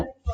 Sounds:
Cough